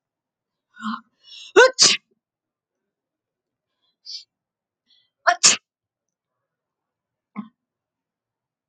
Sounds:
Sneeze